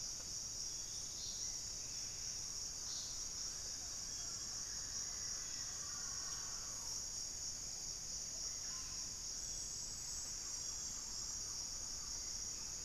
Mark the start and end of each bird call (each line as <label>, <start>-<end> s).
White-rumped Sirystes (Sirystes albocinereus), 0.0-2.5 s
Mealy Parrot (Amazona farinosa), 0.0-12.8 s
Buff-breasted Wren (Cantorchilus leucotis), 1.7-2.6 s
Black-faced Antthrush (Formicarius analis), 4.2-6.7 s
Russet-backed Oropendola (Psarocolius angustifrons), 8.2-9.2 s
Thrush-like Wren (Campylorhynchus turdinus), 9.0-12.8 s